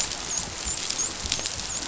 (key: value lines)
label: biophony, dolphin
recorder: SoundTrap 500